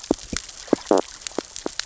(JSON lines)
{"label": "biophony, stridulation", "recorder": "SoundTrap 600 or HydroMoth"}